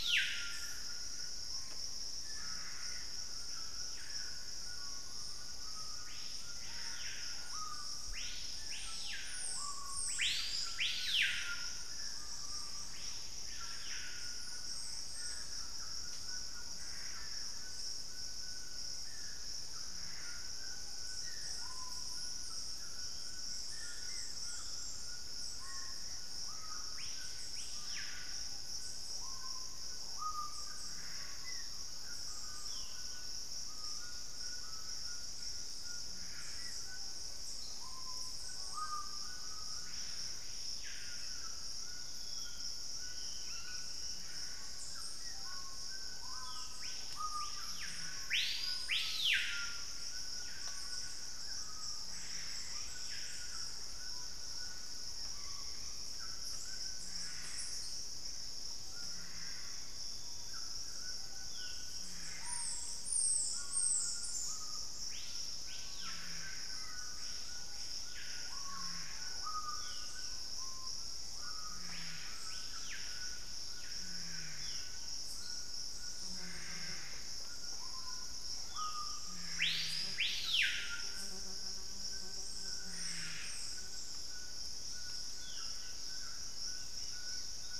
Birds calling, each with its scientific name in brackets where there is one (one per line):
Collared Trogon (Trogon collaris)
White-throated Toucan (Ramphastos tucanus)
Black-spotted Bare-eye (Phlegopsis nigromaculata)
Screaming Piha (Lipaugus vociferans)
unidentified bird
Dusky-throated Antshrike (Thamnomanes ardesiacus)
Thrush-like Wren (Campylorhynchus turdinus)